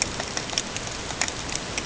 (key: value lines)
label: ambient
recorder: HydroMoth